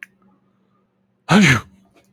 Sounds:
Sneeze